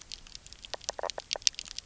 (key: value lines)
label: biophony, knock croak
recorder: SoundTrap 300